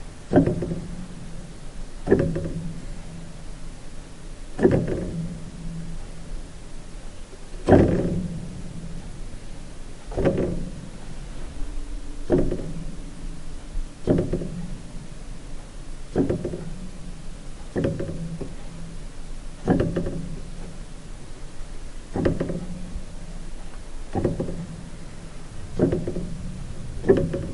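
0.0s Piano hammers striking the strings. 27.5s

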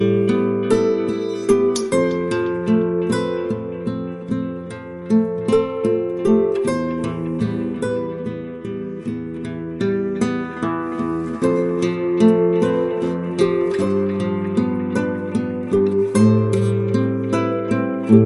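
0.0s A rhythmic, repeated guitar playing. 18.3s

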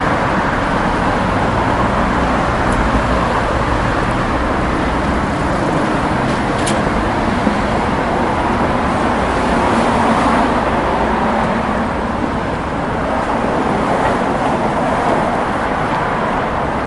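0.0s Loud traffic passing by. 16.9s

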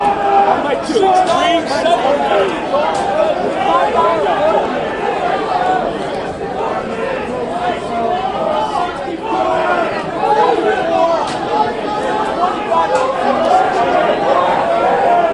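0.0s People are talking loudly with multiple conversations overlapping. 15.3s

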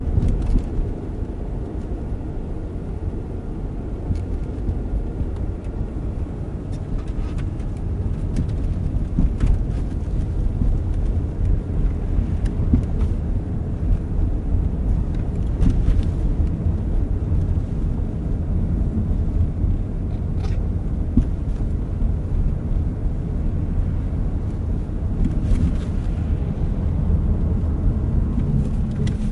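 0.0s A car hits a bump. 0.8s
0.0s The sound of a car driving. 29.3s
4.0s A car hits a bump. 4.3s
9.1s A car hits a bump. 9.7s
12.3s A car hits a bump. 13.0s
15.4s A car hits a bump. 16.2s
20.4s A squeak. 20.7s
21.0s A car hits a bump. 21.6s
25.0s A car hits a bump. 26.0s

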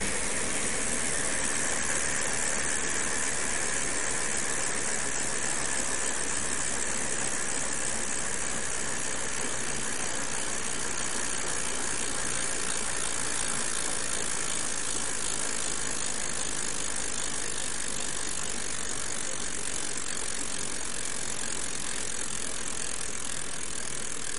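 0.1s The steady pedaling of a bike creates a rhythmic clicking and whirring as the bicycle moves along. 24.4s

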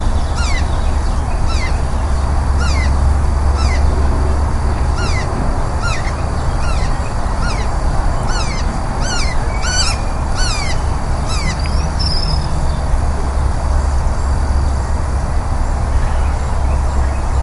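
0.0s An exotic bird chirps. 13.1s
0.0s Ambient sounds of a tropical outdoor environment. 17.4s

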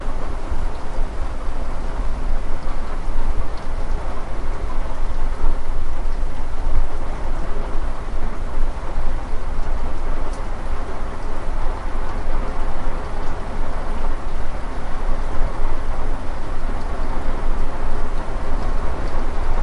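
0.0s Rain falls steadily at a moderate, low frequency. 19.6s
0.0s The echo of moderate rain repeating. 19.6s

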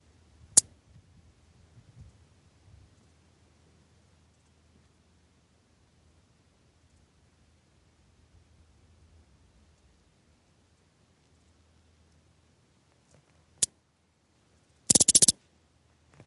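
0.5s A single cricket chirps. 0.7s
13.6s A single cricket chirps. 13.8s
14.9s Multiple insects chirping staccato. 15.4s

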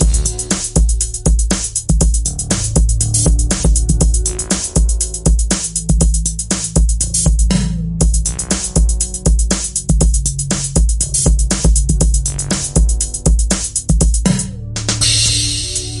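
0.0s A music composition primarily featuring drums with occasional bass guitar and keyboard sounds. 16.0s
14.6s A cymbal crashes three times in a row. 16.0s

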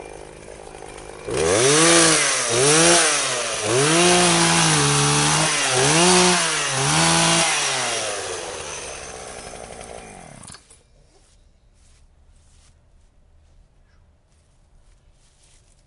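0.1s A chainsaw is sawing in a steady pattern. 1.3s
1.3s A chainsaw is operating loudly at different speeds outdoors. 7.7s
7.8s Chainsaw shuts off with a gradually fading sound. 10.5s
10.7s Footsteps fading away outdoors. 15.9s

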